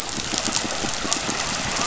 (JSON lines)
{"label": "biophony", "recorder": "SoundTrap 500"}